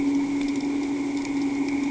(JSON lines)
{"label": "anthrophony, boat engine", "recorder": "HydroMoth"}